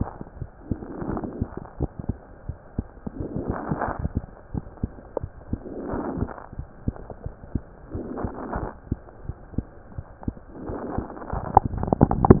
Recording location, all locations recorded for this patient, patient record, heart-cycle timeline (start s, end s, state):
mitral valve (MV)
aortic valve (AV)+pulmonary valve (PV)+tricuspid valve (TV)+mitral valve (MV)
#Age: Child
#Sex: Male
#Height: 98.0 cm
#Weight: 15.1 kg
#Pregnancy status: False
#Murmur: Absent
#Murmur locations: nan
#Most audible location: nan
#Systolic murmur timing: nan
#Systolic murmur shape: nan
#Systolic murmur grading: nan
#Systolic murmur pitch: nan
#Systolic murmur quality: nan
#Diastolic murmur timing: nan
#Diastolic murmur shape: nan
#Diastolic murmur grading: nan
#Diastolic murmur pitch: nan
#Diastolic murmur quality: nan
#Outcome: Abnormal
#Campaign: 2015 screening campaign
0.00	4.50	unannotated
4.50	4.64	S1
4.64	4.79	systole
4.79	4.90	S2
4.90	5.19	diastole
5.19	5.32	S1
5.32	5.48	systole
5.48	5.62	S2
5.62	5.88	diastole
5.88	6.00	S1
6.00	6.17	systole
6.17	6.27	S2
6.27	6.54	diastole
6.54	6.68	S1
6.68	6.84	systole
6.84	6.98	S2
6.98	7.22	diastole
7.22	7.34	S1
7.34	7.50	systole
7.50	7.64	S2
7.64	7.90	diastole
7.90	8.06	S1
8.06	8.20	systole
8.20	8.32	S2
8.32	8.59	diastole
8.59	8.71	S1
8.71	8.88	systole
8.88	9.02	S2
9.02	9.26	diastole
9.26	9.38	S1
9.38	9.54	systole
9.54	9.68	S2
9.68	9.95	diastole
9.95	10.04	S2
10.04	10.24	diastole
10.24	10.34	S1
10.34	10.66	diastole
10.66	10.82	S1
10.82	10.96	systole
10.96	11.08	S2
11.08	11.31	diastole
11.31	11.44	S1
11.44	12.40	unannotated